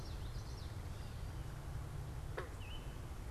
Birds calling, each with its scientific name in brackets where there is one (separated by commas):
unidentified bird, Common Yellowthroat (Geothlypis trichas), Gray Catbird (Dumetella carolinensis)